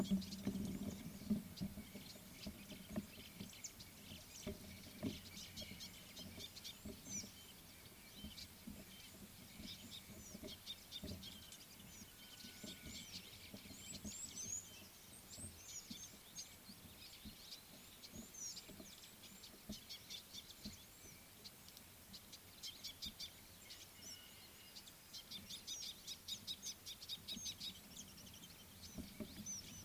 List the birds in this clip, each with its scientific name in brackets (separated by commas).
Red-cheeked Cordonbleu (Uraeginthus bengalus), Scarlet-chested Sunbird (Chalcomitra senegalensis)